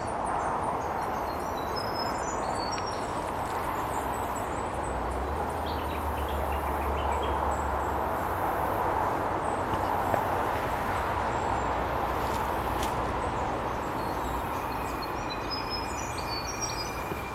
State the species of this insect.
Atrapsalta fuscata